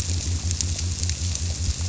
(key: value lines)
label: biophony
recorder: SoundTrap 300